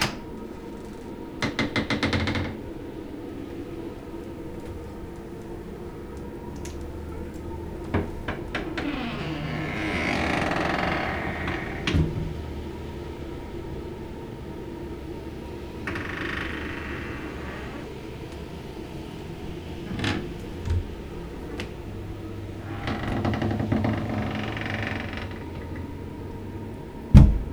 Is someone opening and closing a door?
yes